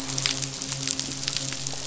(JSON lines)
{"label": "biophony, midshipman", "recorder": "SoundTrap 500"}